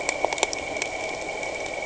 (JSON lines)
{"label": "anthrophony, boat engine", "recorder": "HydroMoth"}